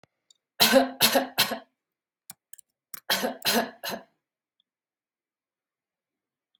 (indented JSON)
{
  "expert_labels": [
    {
      "quality": "good",
      "cough_type": "dry",
      "dyspnea": false,
      "wheezing": false,
      "stridor": false,
      "choking": false,
      "congestion": false,
      "nothing": true,
      "diagnosis": "healthy cough",
      "severity": "pseudocough/healthy cough"
    }
  ],
  "age": 31,
  "gender": "female",
  "respiratory_condition": false,
  "fever_muscle_pain": false,
  "status": "healthy"
}